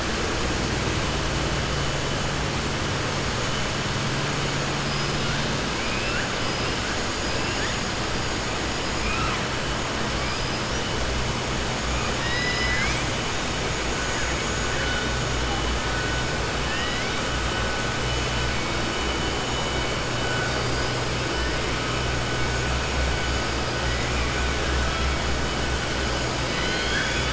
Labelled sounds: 5.8	6.3	killer whale, southern resident, 1.3 to 2.8 kHz
8.9	9.4	killer whale, southern resident, 1.0 to 2.8 kHz

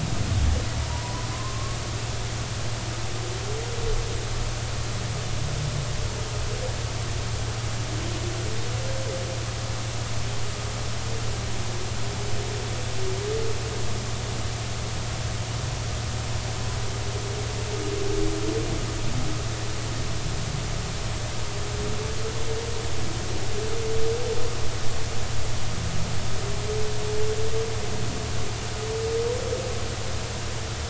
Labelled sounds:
0.9	1.8	humpback whale, 0.90 to 1.1 kHz

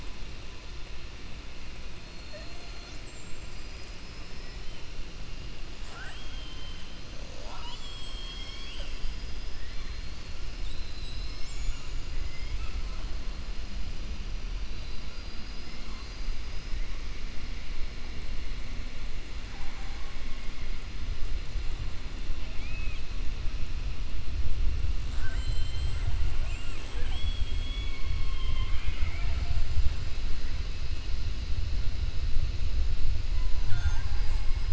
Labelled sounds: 5.8	6.8	killer whale, 0.64 to 3.3 kHz
9.5	9.9	killer whale, 1.1 to 2.4 kHz
12.2	13.0	killer whale, 0.64 to 3.5 kHz
22.5	23.0	killer whale, 1.9 to 3.4 kHz
26.3	27.3	killer whale, 5.6 to 7.9 kHz

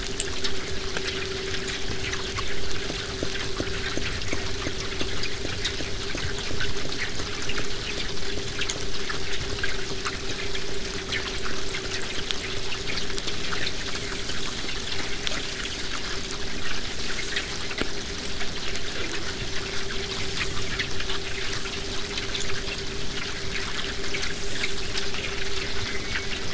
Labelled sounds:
25.8	26.5	killer whale, southern resident, J pod, call S04, 0.95 to 2.4 kHz

